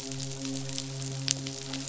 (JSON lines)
{"label": "biophony, midshipman", "recorder": "SoundTrap 500"}